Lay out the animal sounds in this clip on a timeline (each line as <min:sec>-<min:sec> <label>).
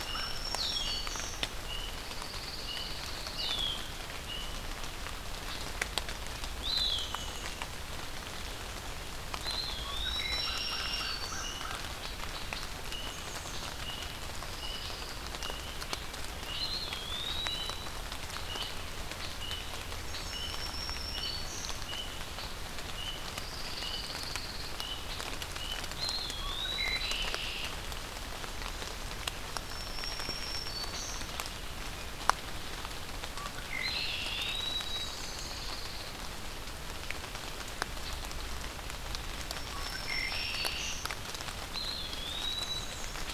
0:00.0-0:01.4 Black-throated Green Warbler (Setophaga virens)
0:00.4-0:07.1 Red-winged Blackbird (Agelaius phoeniceus)
0:00.5-0:04.6 unidentified call
0:01.8-0:03.4 Pine Warbler (Setophaga pinus)
0:06.3-0:07.6 Blackburnian Warbler (Setophaga fusca)
0:06.4-0:07.7 Eastern Wood-Pewee (Contopus virens)
0:09.2-0:10.7 Eastern Wood-Pewee (Contopus virens)
0:09.7-0:11.7 Black-throated Green Warbler (Setophaga virens)
0:10.2-0:11.8 American Crow (Corvus brachyrhynchos)
0:12.7-0:25.8 unidentified call
0:12.7-0:13.7 Blackburnian Warbler (Setophaga fusca)
0:14.3-0:15.2 Pine Warbler (Setophaga pinus)
0:16.5-0:18.0 Eastern Wood-Pewee (Contopus virens)
0:20.1-0:21.8 Black-throated Green Warbler (Setophaga virens)
0:23.2-0:24.8 Pine Warbler (Setophaga pinus)
0:25.9-0:27.2 Eastern Wood-Pewee (Contopus virens)
0:26.4-0:27.7 Red-winged Blackbird (Agelaius phoeniceus)
0:29.5-0:31.3 Black-throated Green Warbler (Setophaga virens)
0:33.3-0:34.5 Red-winged Blackbird (Agelaius phoeniceus)
0:33.6-0:35.3 Eastern Wood-Pewee (Contopus virens)
0:34.8-0:36.2 Pine Warbler (Setophaga pinus)
0:34.8-0:35.8 Blackburnian Warbler (Setophaga fusca)
0:39.3-0:41.1 Black-throated Green Warbler (Setophaga virens)
0:39.7-0:41.2 Red-winged Blackbird (Agelaius phoeniceus)
0:41.7-0:42.9 Eastern Wood-Pewee (Contopus virens)
0:42.4-0:43.3 Blackburnian Warbler (Setophaga fusca)